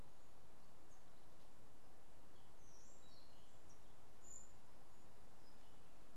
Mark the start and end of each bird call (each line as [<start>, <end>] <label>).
[3.98, 4.67] White-eared Ground-Sparrow (Melozone leucotis)